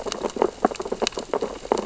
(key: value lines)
label: biophony, sea urchins (Echinidae)
recorder: SoundTrap 600 or HydroMoth